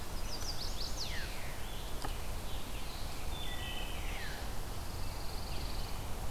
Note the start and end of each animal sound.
[0.00, 1.61] Chestnut-sided Warbler (Setophaga pensylvanica)
[0.84, 1.26] Veery (Catharus fuscescens)
[1.31, 3.44] Scarlet Tanager (Piranga olivacea)
[3.36, 4.12] Wood Thrush (Hylocichla mustelina)
[4.02, 6.15] Pine Warbler (Setophaga pinus)
[4.04, 4.39] Veery (Catharus fuscescens)

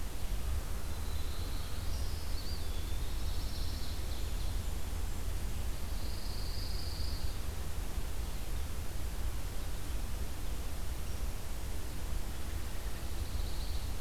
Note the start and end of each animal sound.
[0.62, 2.35] Black-throated Blue Warbler (Setophaga caerulescens)
[2.29, 3.54] Eastern Wood-Pewee (Contopus virens)
[2.96, 4.95] Pine Warbler (Setophaga pinus)
[4.00, 6.00] Blackburnian Warbler (Setophaga fusca)
[5.70, 7.45] Pine Warbler (Setophaga pinus)
[12.61, 14.01] Pine Warbler (Setophaga pinus)

